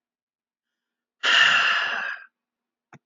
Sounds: Sigh